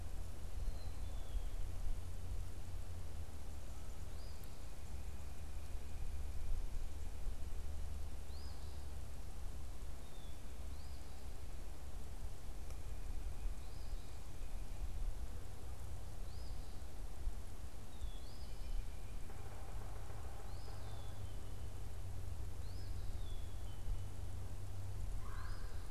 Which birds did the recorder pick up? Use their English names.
Black-capped Chickadee, Eastern Phoebe, unidentified bird, Yellow-bellied Sapsucker, Red-bellied Woodpecker